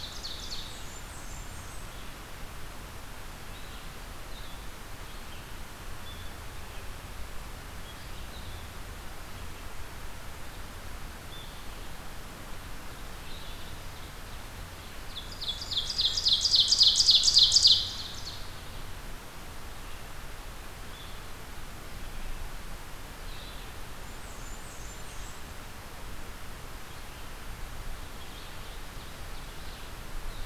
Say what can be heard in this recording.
Ovenbird, Blackburnian Warbler, Red-eyed Vireo